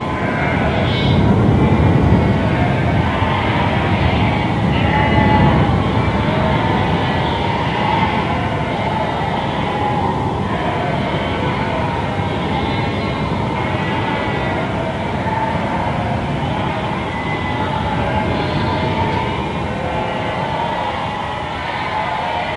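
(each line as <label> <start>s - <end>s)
Wind is blowing on a field. 0.0s - 22.6s
Sheep bleat repeatedly in the distance. 0.0s - 22.6s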